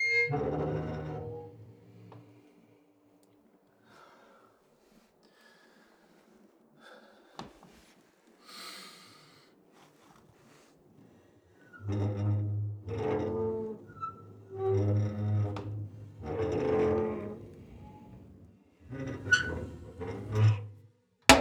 Is there a person moving something?
yes